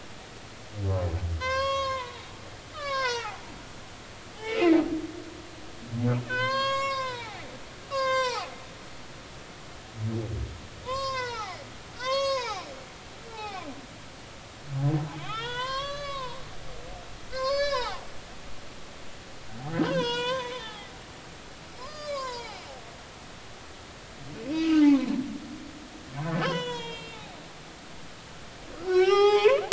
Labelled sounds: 1.4	2.3	humpback whale, 0.80 to 6.6 kHz
2.7	3.4	humpback whale, 0.80 to 6.0 kHz
3.7	4.3	humpback whale, 1.2 to 2.0 kHz
6.2	7.4	humpback whale, 0.80 to 7.7 kHz
7.9	8.5	humpback whale, 0.80 to 7.4 kHz
10.8	11.6	humpback whale, 0.80 to 7.6 kHz
12.0	12.7	humpback whale, 0.80 to 6.8 kHz
13.3	13.7	humpback whale, 0.80 to 4.1 kHz
15.1	16.4	humpback whale, 0.90 to 6.4 kHz
17.3	18.1	humpback whale, 0.80 to 6.4 kHz
19.8	20.9	humpback whale, 0.80 to 6.9 kHz
21.8	22.6	humpback whale, 0.80 to 5.5 kHz
24.3	25.1	humpback whale, 0.96 to 3.0 kHz
26.2	27.3	humpback whale, 0.86 to 7.0 kHz
28.8	29.6	humpback whale, 0.80 to 5.9 kHz

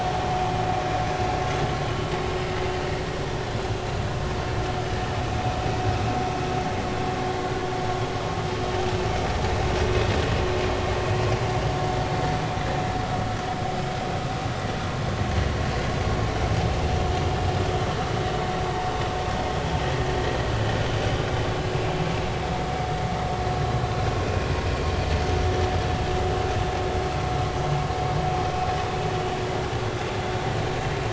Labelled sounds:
24.2	24.5	vessel noise, 2.4 to 2.6 kHz

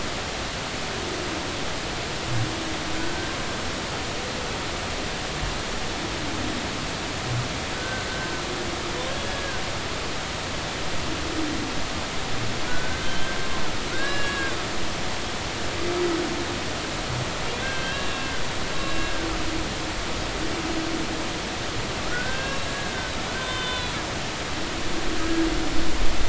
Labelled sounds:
2.9	3.4	humpback whale, 1.4 to 1.6 kHz
7.7	8.1	humpback whale, 1.4 to 1.6 kHz
9.2	9.6	humpback whale, 1.5 to 1.7 kHz
12.7	13.4	humpback whale, 1.4 to 3.2 kHz
13.9	14.5	humpback whale, 1.3 to 4.0 kHz
17.6	18.4	humpback whale, 1.4 to 3.9 kHz
18.8	19.1	humpback whale, 1.6 to 2.8 kHz
22.1	23.9	humpback whale, 0.96 to 4.2 kHz
25.2	25.4	humpback whale, 1.6 to 1.7 kHz

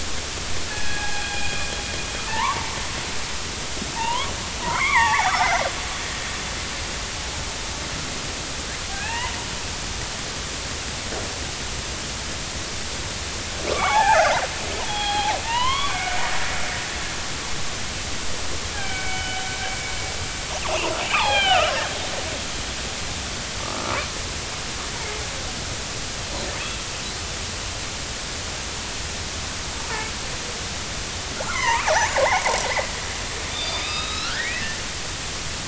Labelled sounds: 0.7	1.5	killer whale, northern resident, A clan, AB subclan, 0.80 to 3.4 kHz
2.3	2.7	killer whale, northern resident, A clan, AB subclan, 0.83 to 1.2 kHz
4.0	5.6	killer whale, northern resident, A clan, AB subclan, 0.80 to 3.6 kHz
8.9	9.3	killer whale, northern resident, A clan, AB subclan, 0.80 to 3.1 kHz
13.7	14.4	killer whale, northern resident, A clan, AB subclan, 0.80 to 3.5 kHz
14.9	16.2	killer whale, northern resident, A clan, AB subclan, 0.80 to 4.2 kHz
18.7	19.5	killer whale, northern resident, A clan, AB subclan, 1.4 to 3.0 kHz
20.7	21.7	killer whale, northern resident, A clan, AB subclan, 0.80 to 4.3 kHz
23.6	24.1	killer whale, northern resident, A clan, AB subclan, 0.93 to 1.4 kHz
31.4	32.5	killer whale, northern resident, A clan, AB subclan, 0.80 to 2.3 kHz
33.5	34.8	killer whale, northern resident, A clan, AB subclan, 1.2 to 5.0 kHz

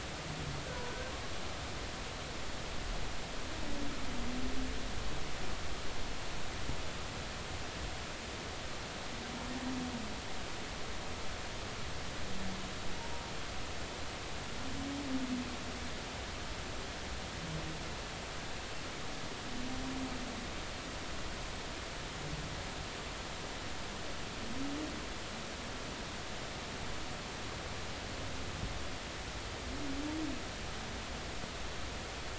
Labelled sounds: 0.7	1.1	humpback whale, 1.4 to 1.6 kHz

